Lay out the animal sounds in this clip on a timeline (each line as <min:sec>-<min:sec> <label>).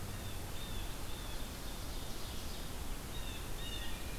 0:00.0-0:01.5 Blue Jay (Cyanocitta cristata)
0:01.3-0:03.1 Ovenbird (Seiurus aurocapilla)
0:03.1-0:04.0 Blue Jay (Cyanocitta cristata)